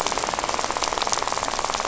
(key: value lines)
label: biophony, rattle
recorder: SoundTrap 500